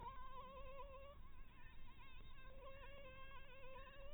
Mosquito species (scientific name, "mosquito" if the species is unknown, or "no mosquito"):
Anopheles dirus